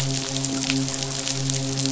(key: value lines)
label: biophony, midshipman
recorder: SoundTrap 500